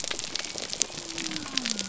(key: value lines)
label: biophony
recorder: SoundTrap 300